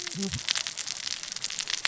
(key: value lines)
label: biophony, cascading saw
recorder: SoundTrap 600 or HydroMoth